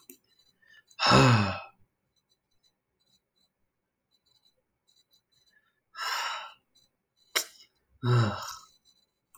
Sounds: Sigh